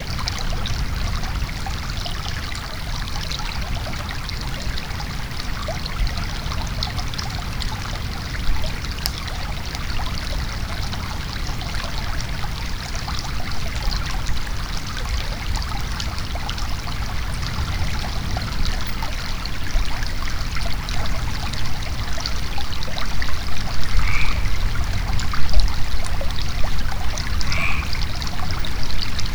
Is the matter that produces the sound in a liquid state?
yes